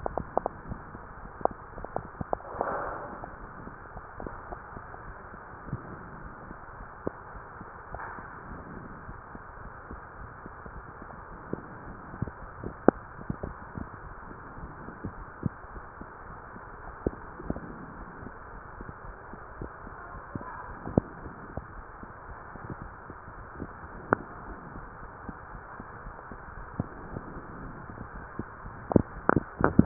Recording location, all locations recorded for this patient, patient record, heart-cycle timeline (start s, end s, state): mitral valve (MV)
aortic valve (AV)+pulmonary valve (PV)+tricuspid valve (TV)+mitral valve (MV)
#Age: Child
#Sex: Female
#Height: 148.0 cm
#Weight: 61.0 kg
#Pregnancy status: False
#Murmur: Absent
#Murmur locations: nan
#Most audible location: nan
#Systolic murmur timing: nan
#Systolic murmur shape: nan
#Systolic murmur grading: nan
#Systolic murmur pitch: nan
#Systolic murmur quality: nan
#Diastolic murmur timing: nan
#Diastolic murmur shape: nan
#Diastolic murmur grading: nan
#Diastolic murmur pitch: nan
#Diastolic murmur quality: nan
#Outcome: Normal
#Campaign: 2015 screening campaign
0.00	8.48	unannotated
8.48	8.64	S1
8.64	8.76	systole
8.76	8.90	S2
8.90	9.06	diastole
9.06	9.16	S1
9.16	9.34	systole
9.34	9.44	S2
9.44	9.62	diastole
9.62	9.72	S1
9.72	9.92	systole
9.92	10.02	S2
10.02	10.20	diastole
10.20	10.32	S1
10.32	10.46	systole
10.46	10.54	S2
10.54	10.72	diastole
10.72	10.86	S1
10.86	11.02	systole
11.02	11.10	S2
11.10	11.27	diastole
11.27	11.40	S1
11.40	29.86	unannotated